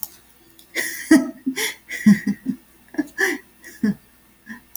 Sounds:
Laughter